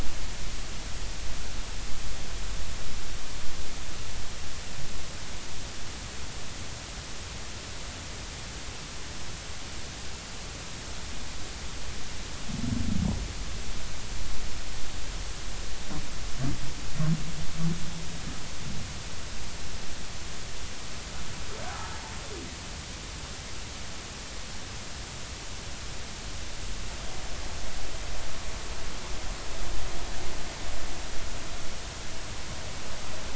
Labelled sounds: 21.7	22.0	humpback whale, 1.2 to 1.4 kHz

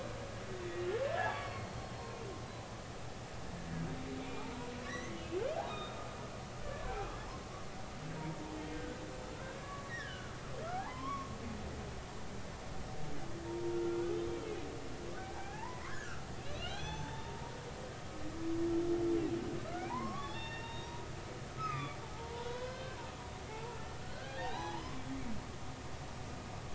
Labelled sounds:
1.0	1.8	humpback whale, 1.0 to 4.6 kHz
4.2	5.1	humpback whale, 0.83 to 2.5 kHz
5.6	7.3	humpback whale, 1.2 to 3.8 kHz
8.7	10.4	humpback whale, 1.0 to 3.2 kHz
10.6	11.3	humpback whale, 0.80 to 3.4 kHz
13.5	14.0	humpback whale, 0.90 to 1.4 kHz
15.2	17.5	humpback whale, 0.80 to 3.7 kHz
19.8	23.0	humpback whale, 0.80 to 5.8 kHz
23.5	24.8	humpback whale, 0.80 to 4.1 kHz

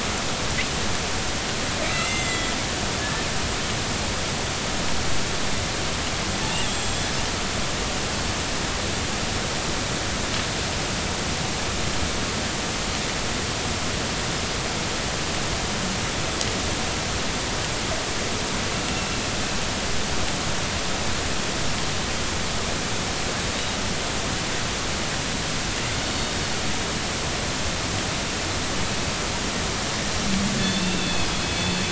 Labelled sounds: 1.9	2.5	killer whale, northern resident, G clan, call N40, 2.0 to 7.6 kHz
3.0	3.2	killer whale, northern resident, 1.6 to 1.8 kHz
6.7	7.0	killer whale, northern resident, G clan, call N40, 3.2 to 7.6 kHz
30.6	31.3	killer whale, northern resident, G clan, 2.5 to 4.4 kHz

